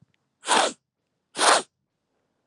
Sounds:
Sniff